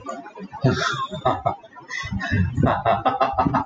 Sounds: Laughter